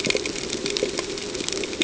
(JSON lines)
{"label": "ambient", "recorder": "HydroMoth"}